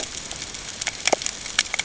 {"label": "ambient", "recorder": "HydroMoth"}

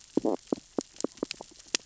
{"label": "biophony, stridulation", "recorder": "SoundTrap 600 or HydroMoth"}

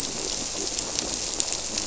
{"label": "biophony", "recorder": "SoundTrap 300"}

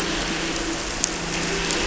{"label": "anthrophony, boat engine", "recorder": "SoundTrap 300"}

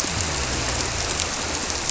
{"label": "biophony", "recorder": "SoundTrap 300"}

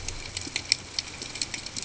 {"label": "ambient", "recorder": "HydroMoth"}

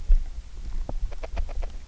{"label": "biophony, grazing", "recorder": "SoundTrap 300"}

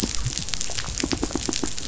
{"label": "biophony", "recorder": "SoundTrap 500"}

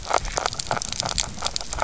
{"label": "biophony, grazing", "recorder": "SoundTrap 300"}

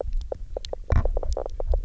{"label": "biophony, knock croak", "recorder": "SoundTrap 300"}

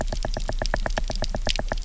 {"label": "biophony, knock", "recorder": "SoundTrap 300"}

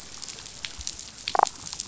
{"label": "biophony, damselfish", "recorder": "SoundTrap 500"}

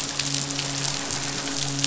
{"label": "biophony, midshipman", "recorder": "SoundTrap 500"}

